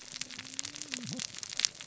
{"label": "biophony, cascading saw", "recorder": "SoundTrap 600 or HydroMoth"}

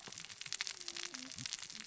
{"label": "biophony, cascading saw", "recorder": "SoundTrap 600 or HydroMoth"}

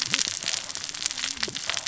{"label": "biophony, cascading saw", "recorder": "SoundTrap 600 or HydroMoth"}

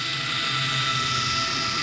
{"label": "anthrophony, boat engine", "recorder": "SoundTrap 500"}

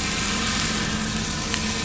{"label": "anthrophony, boat engine", "recorder": "SoundTrap 500"}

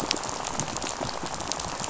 {"label": "biophony, rattle", "recorder": "SoundTrap 500"}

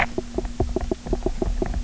{"label": "biophony, knock croak", "recorder": "SoundTrap 300"}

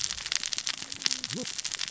{"label": "biophony, cascading saw", "recorder": "SoundTrap 600 or HydroMoth"}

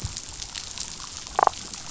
{"label": "biophony, damselfish", "recorder": "SoundTrap 500"}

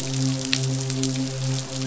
{"label": "biophony, midshipman", "recorder": "SoundTrap 500"}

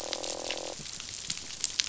{"label": "biophony, croak", "recorder": "SoundTrap 500"}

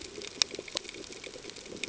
{"label": "ambient", "recorder": "HydroMoth"}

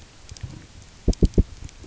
{"label": "biophony, knock", "recorder": "SoundTrap 300"}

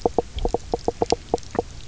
{"label": "biophony, knock croak", "recorder": "SoundTrap 300"}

